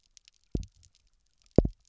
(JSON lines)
{"label": "biophony, double pulse", "recorder": "SoundTrap 300"}